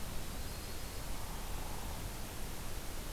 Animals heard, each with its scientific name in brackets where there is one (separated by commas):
Hairy Woodpecker (Dryobates villosus), Yellow-rumped Warbler (Setophaga coronata)